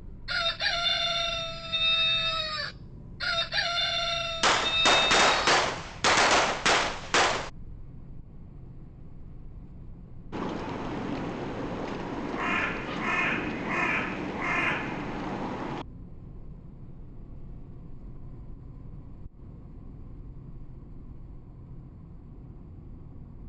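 At 0.26 seconds, there is the sound of a chicken. Over it, at 4.4 seconds, gunfire is heard. Then, at 10.32 seconds, a crow can be heard.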